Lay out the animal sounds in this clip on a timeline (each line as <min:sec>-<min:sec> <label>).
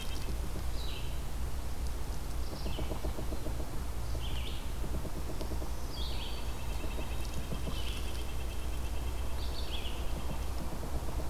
0:00.0-0:11.3 Red-eyed Vireo (Vireo olivaceus)
0:02.3-0:03.5 Yellow-bellied Sapsucker (Sphyrapicus varius)
0:04.8-0:05.8 Yellow-bellied Sapsucker (Sphyrapicus varius)
0:06.0-0:10.6 Red-breasted Nuthatch (Sitta canadensis)